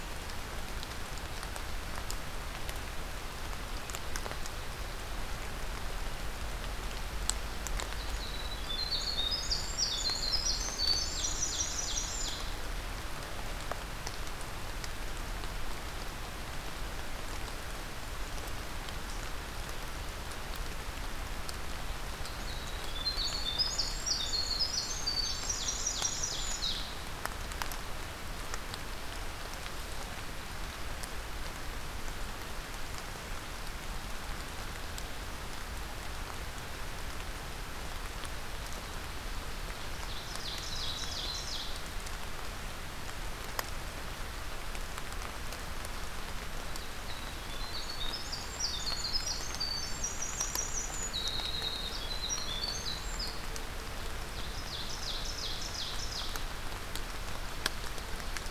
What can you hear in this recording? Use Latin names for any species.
Troglodytes hiemalis, Seiurus aurocapilla